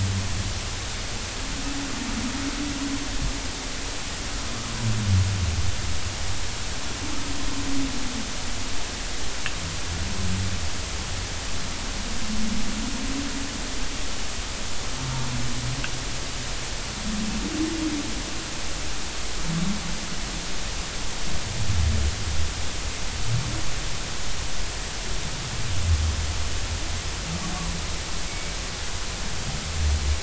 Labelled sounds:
28.3	28.6	humpback whale, 2.1 to 2.3 kHz

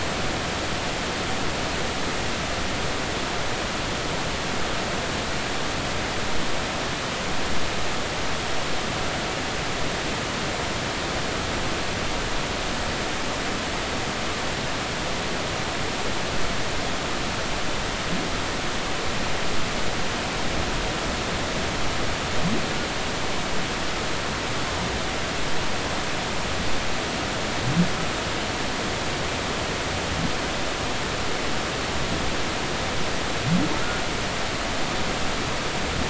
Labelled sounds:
33.8	34.0	humpback whale, 1.3 to 1.5 kHz

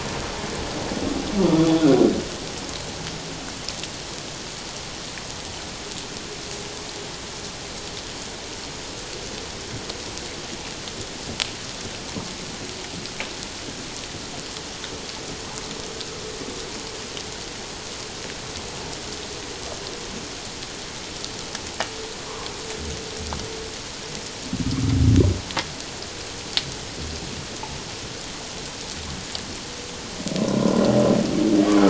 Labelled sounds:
22.2	22.5	humpback whale, 0.94 to 1.2 kHz
30.4	30.9	humpback whale, 0.94 to 1.1 kHz

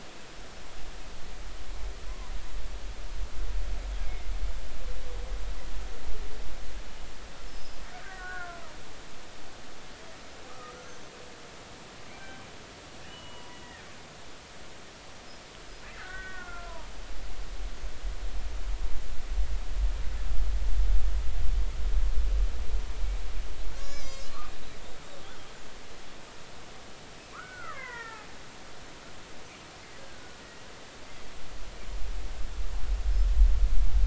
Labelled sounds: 2.1	2.3	killer whale, Bigg's (transient), 0.93 to 1.2 kHz
4.0	4.3	killer whale, Bigg's (transient), 2.0 to 2.4 kHz
7.5	8.6	killer whale, Bigg's (transient), 0.99 to 5.4 kHz
10.5	11.1	killer whale, Bigg's (transient), 1.1 to 6.3 kHz
12.1	12.4	killer whale, Bigg's (transient), 1.5 to 2.4 kHz
13.1	13.6	killer whale, Bigg's (transient), 0.93 to 3.0 kHz
15.9	16.8	killer whale, Bigg's (transient), 1.0 to 2.0 kHz
23.7	24.3	killer whale, Bigg's (transient), 1.1 to 6.4 kHz
27.3	28.2	killer whale, Bigg's (transient), 0.90 to 2.2 kHz
30.0	30.4	killer whale, Bigg's (transient), 1.4 to 1.7 kHz

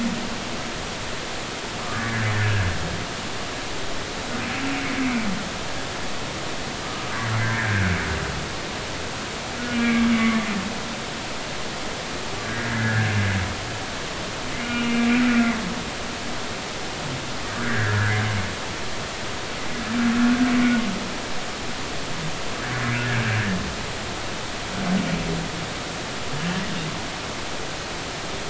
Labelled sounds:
1.9	2.6	humpback whale, 1.4 to 1.9 kHz
7.4	7.9	humpback whale, 1.5 to 1.9 kHz
9.7	10.4	humpback whale, 1.6 to 2.4 kHz
12.4	13.1	humpback whale, 1.4 to 1.8 kHz
14.6	15.0	humpback whale, 2.3 to 2.9 kHz
17.6	18.2	humpback whale, 1.3 to 1.9 kHz

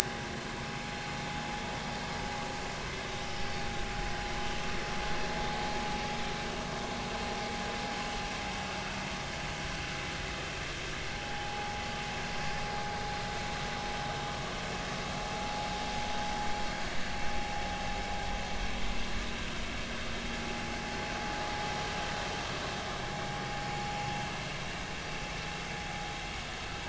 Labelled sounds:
11.2	11.8	vessel noise, 0.80 to 0.90 kHz

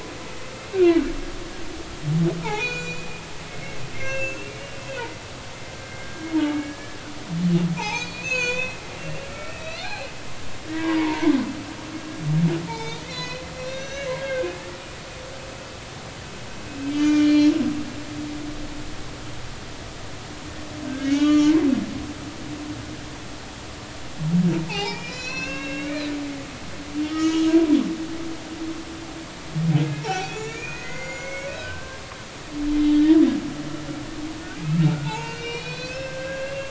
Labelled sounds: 2.4	3.1	humpback whale, 0.80 to 6.9 kHz
3.9	4.6	humpback whale, 1.5 to 6.0 kHz
5.7	7.0	humpback whale, 1.5 to 2.3 kHz
7.7	10.1	humpback whale, 0.80 to 7.4 kHz
10.7	11.3	humpback whale, 0.80 to 2.4 kHz
12.7	15.0	humpback whale, 0.83 to 6.2 kHz
16.9	17.5	humpback whale, 1.4 to 6.4 kHz
20.9	21.5	humpback whale, 1.1 to 4.2 kHz
24.7	26.1	humpback whale, 0.80 to 6.2 kHz
27.0	27.5	humpback whale, 1.2 to 3.4 kHz
29.9	32.0	humpback whale, 0.80 to 7.0 kHz
32.9	33.2	humpback whale, 1.7 to 2.0 kHz
34.6	36.6	humpback whale, 0.80 to 6.3 kHz

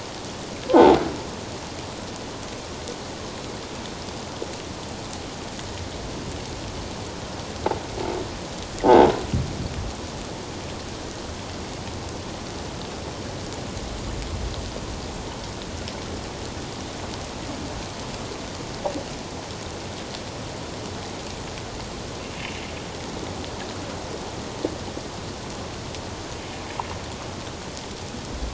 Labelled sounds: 0.7	1.0	croaking sound likely from a nearby submerged object, 0.78 to 1.1 kHz
8.8	9.1	croaking sound likely from a nearby submerged object, 0.78 to 0.94 kHz
26.5	26.8	sound from a nearby beach, 2.2 to 2.5 kHz

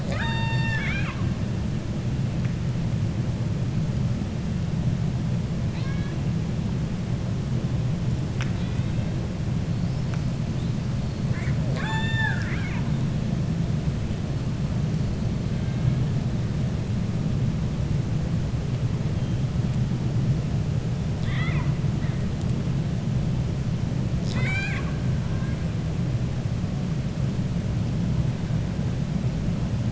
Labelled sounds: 5.6	6.2	killer whale, 0.94 to 5.5 kHz
11.2	12.9	killer whale, 0.66 to 7.9 kHz
21.1	21.7	killer whale, 0.98 to 4.1 kHz
24.1	25.0	killer whale, 0.79 to 7.9 kHz

